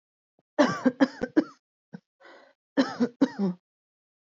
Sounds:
Cough